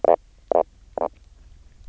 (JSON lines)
{"label": "biophony, knock croak", "recorder": "SoundTrap 300"}